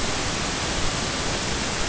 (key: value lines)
label: ambient
recorder: HydroMoth